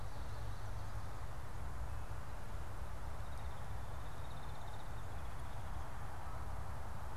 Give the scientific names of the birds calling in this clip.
unidentified bird